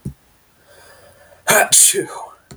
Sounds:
Sneeze